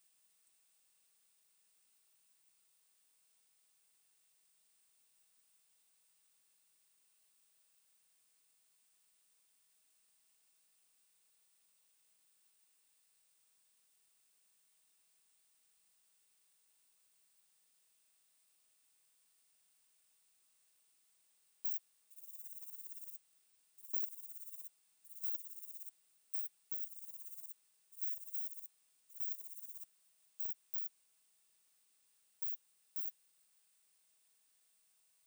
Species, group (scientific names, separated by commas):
Rhacocleis lithoscirtetes, Orthoptera